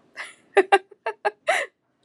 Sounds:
Laughter